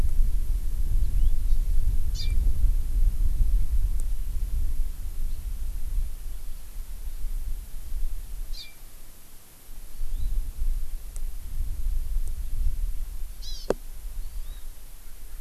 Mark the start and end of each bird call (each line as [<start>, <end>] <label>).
[2.13, 2.33] Hawaii Amakihi (Chlorodrepanis virens)
[8.53, 8.83] Hawaii Amakihi (Chlorodrepanis virens)
[9.83, 10.33] Hawaii Amakihi (Chlorodrepanis virens)
[13.33, 13.73] Hawaii Amakihi (Chlorodrepanis virens)
[14.13, 14.73] Hawaii Amakihi (Chlorodrepanis virens)